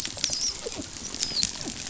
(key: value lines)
label: biophony, dolphin
recorder: SoundTrap 500